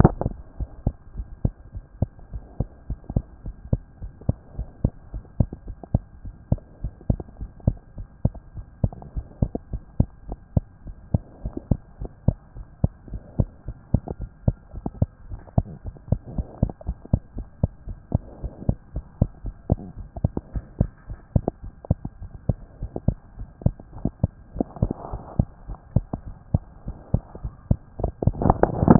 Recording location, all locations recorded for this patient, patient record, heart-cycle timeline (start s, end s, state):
pulmonary valve (PV)
aortic valve (AV)+pulmonary valve (PV)+tricuspid valve (TV)+mitral valve (MV)
#Age: Child
#Sex: Female
#Height: 88.0 cm
#Weight: 13.1 kg
#Pregnancy status: False
#Murmur: Absent
#Murmur locations: nan
#Most audible location: nan
#Systolic murmur timing: nan
#Systolic murmur shape: nan
#Systolic murmur grading: nan
#Systolic murmur pitch: nan
#Systolic murmur quality: nan
#Diastolic murmur timing: nan
#Diastolic murmur shape: nan
#Diastolic murmur grading: nan
#Diastolic murmur pitch: nan
#Diastolic murmur quality: nan
#Outcome: Abnormal
#Campaign: 2014 screening campaign
0.00	0.16	S1
0.16	0.28	systole
0.28	0.38	S2
0.38	0.58	diastole
0.58	0.70	S1
0.70	0.84	systole
0.84	0.94	S2
0.94	1.16	diastole
1.16	1.28	S1
1.28	1.44	systole
1.44	1.54	S2
1.54	1.74	diastole
1.74	1.84	S1
1.84	2.00	systole
2.00	2.10	S2
2.10	2.32	diastole
2.32	2.44	S1
2.44	2.58	systole
2.58	2.68	S2
2.68	2.88	diastole
2.88	2.98	S1
2.98	3.12	systole
3.12	3.24	S2
3.24	3.44	diastole
3.44	3.56	S1
3.56	3.70	systole
3.70	3.82	S2
3.82	4.02	diastole
4.02	4.12	S1
4.12	4.26	systole
4.26	4.36	S2
4.36	4.56	diastole
4.56	4.68	S1
4.68	4.82	systole
4.82	4.92	S2
4.92	5.12	diastole
5.12	5.24	S1
5.24	5.38	systole
5.38	5.48	S2
5.48	5.68	diastole
5.68	5.78	S1
5.78	5.92	systole
5.92	6.02	S2
6.02	6.22	diastole
6.22	6.34	S1
6.34	6.50	systole
6.50	6.60	S2
6.60	6.82	diastole
6.82	6.94	S1
6.94	7.08	systole
7.08	7.20	S2
7.20	7.40	diastole
7.40	7.50	S1
7.50	7.66	systole
7.66	7.78	S2
7.78	7.98	diastole
7.98	8.08	S1
8.08	8.24	systole
8.24	8.36	S2
8.36	8.56	diastole
8.56	8.66	S1
8.66	8.82	systole
8.82	8.94	S2
8.94	9.14	diastole
9.14	9.26	S1
9.26	9.40	systole
9.40	9.52	S2
9.52	9.72	diastole
9.72	9.82	S1
9.82	9.98	systole
9.98	10.08	S2
10.08	10.28	diastole
10.28	10.38	S1
10.38	10.52	systole
10.52	10.64	S2
10.64	10.86	diastole
10.86	10.96	S1
10.96	11.10	systole
11.10	11.22	S2
11.22	11.42	diastole
11.42	11.54	S1
11.54	11.70	systole
11.70	11.80	S2
11.80	12.00	diastole
12.00	12.10	S1
12.10	12.24	systole
12.24	12.36	S2
12.36	12.56	diastole
12.56	12.66	S1
12.66	12.80	systole
12.80	12.92	S2
12.92	13.10	diastole
13.10	13.22	S1
13.22	13.38	systole
13.38	13.50	S2
13.50	13.68	diastole
13.68	13.78	S1
13.78	13.92	systole
13.92	14.02	S2
14.02	14.20	diastole
14.20	14.30	S1
14.30	14.46	systole
14.46	14.56	S2
14.56	14.76	diastole
14.76	14.86	S1
14.86	15.00	systole
15.00	15.10	S2
15.10	15.30	diastole
15.30	15.42	S1
15.42	15.56	systole
15.56	15.66	S2
15.66	15.86	diastole
15.86	15.96	S1
15.96	16.10	systole
16.10	16.20	S2
16.20	16.36	diastole
16.36	16.46	S1
16.46	16.60	systole
16.60	16.70	S2
16.70	16.88	diastole
16.88	16.98	S1
16.98	17.12	systole
17.12	17.22	S2
17.22	17.38	diastole
17.38	17.48	S1
17.48	17.62	systole
17.62	17.72	S2
17.72	17.88	diastole
17.88	17.98	S1
17.98	18.12	systole
18.12	18.22	S2
18.22	18.42	diastole
18.42	18.52	S1
18.52	18.66	systole
18.66	18.76	S2
18.76	18.96	diastole
18.96	19.06	S1
19.06	19.20	systole
19.20	19.30	S2
19.30	19.46	diastole
19.46	19.56	S1
19.56	19.70	systole
19.70	19.80	S2
19.80	19.98	diastole
19.98	20.08	S1
20.08	20.22	systole
20.22	20.32	S2
20.32	20.52	diastole
20.52	20.64	S1
20.64	20.78	systole
20.78	20.90	S2
20.90	21.10	diastole
21.10	21.20	S1
21.20	21.34	systole
21.34	21.46	S2
21.46	21.64	diastole
21.64	21.74	S1
21.74	21.88	systole
21.88	21.98	S2
21.98	22.20	diastole
22.20	22.32	S1
22.32	22.48	systole
22.48	22.60	S2
22.60	22.80	diastole
22.80	22.92	S1
22.92	23.06	systole
23.06	23.18	S2
23.18	23.38	diastole
23.38	23.50	S1
23.50	23.64	systole
23.64	23.76	S2
23.76	23.96	diastole
23.96	24.10	S1
24.10	24.24	systole
24.24	24.34	S2
24.34	24.56	diastole
24.56	24.68	S1
24.68	24.80	systole
24.80	24.92	S2
24.92	25.12	diastole
25.12	25.22	S1
25.22	25.36	systole
25.36	25.48	S2
25.48	25.68	diastole
25.68	25.78	S1
25.78	25.94	systole
25.94	26.06	S2
26.06	26.26	diastole
26.26	26.36	S1
26.36	26.52	systole
26.52	26.64	S2
26.64	26.86	diastole
26.86	26.98	S1
26.98	27.12	systole
27.12	27.22	S2
27.22	27.42	diastole
27.42	27.54	S1
27.54	27.68	systole
27.68	27.80	S2
27.80	28.00	diastole
28.00	28.12	S1
28.12	28.26	systole
28.26	28.46	S2
28.46	28.99	diastole